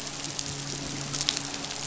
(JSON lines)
{"label": "biophony, midshipman", "recorder": "SoundTrap 500"}